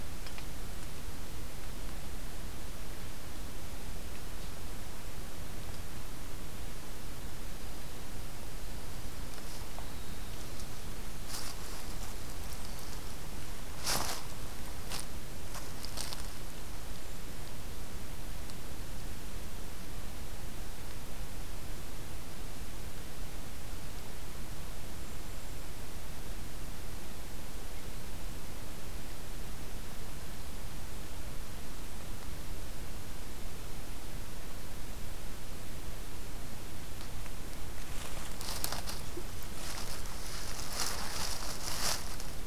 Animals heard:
forest ambience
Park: Hubbard Brook Experimental Forest